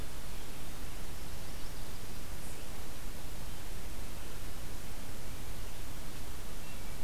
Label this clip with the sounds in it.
Chestnut-sided Warbler, Wood Thrush